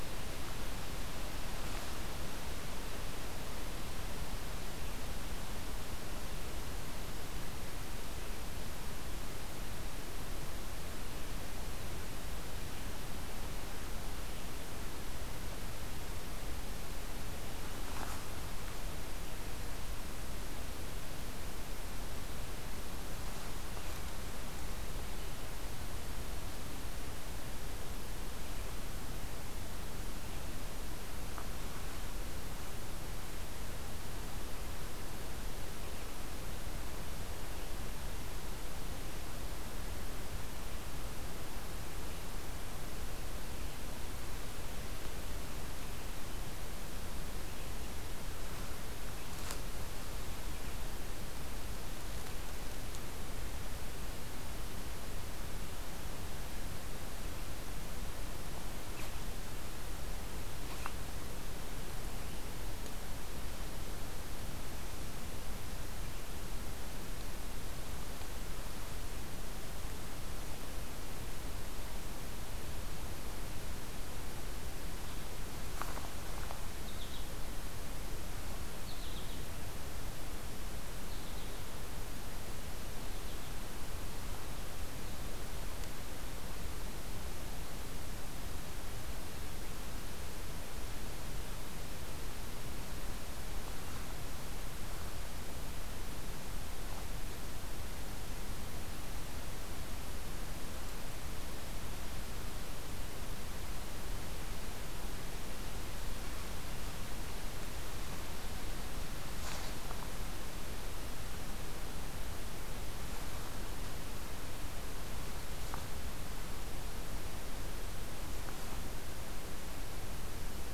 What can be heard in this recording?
American Goldfinch